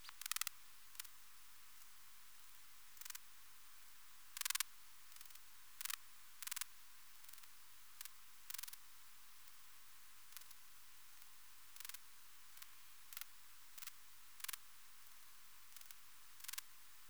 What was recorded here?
Poecilimon zimmeri, an orthopteran